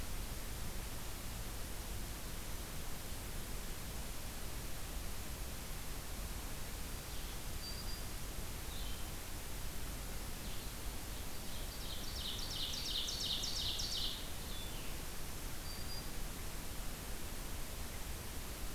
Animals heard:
Blue-headed Vireo (Vireo solitarius), Black-throated Green Warbler (Setophaga virens), Ovenbird (Seiurus aurocapilla)

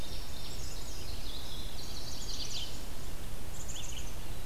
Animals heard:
Chestnut-sided Warbler (Setophaga pensylvanica), Black-capped Chickadee (Poecile atricapillus), Red-eyed Vireo (Vireo olivaceus), Indigo Bunting (Passerina cyanea)

